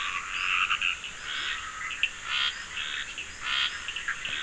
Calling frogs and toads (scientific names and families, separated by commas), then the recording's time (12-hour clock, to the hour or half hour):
Scinax perereca (Hylidae), Leptodactylus latrans (Leptodactylidae)
10:30pm